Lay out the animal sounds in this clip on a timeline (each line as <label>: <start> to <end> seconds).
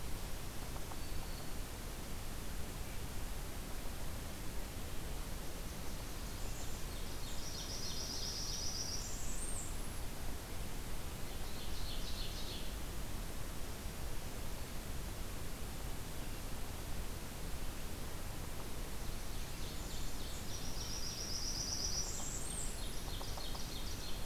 Black-throated Green Warbler (Setophaga virens): 0.9 to 1.6 seconds
Blackburnian Warbler (Setophaga fusca): 5.3 to 6.9 seconds
Blackburnian Warbler (Setophaga fusca): 7.2 to 10.0 seconds
Ovenbird (Seiurus aurocapilla): 11.3 to 12.7 seconds
Ovenbird (Seiurus aurocapilla): 19.1 to 21.2 seconds
Blackburnian Warbler (Setophaga fusca): 20.4 to 23.0 seconds
Ovenbird (Seiurus aurocapilla): 22.2 to 24.3 seconds
Yellow-bellied Sapsucker (Sphyrapicus varius): 22.8 to 23.8 seconds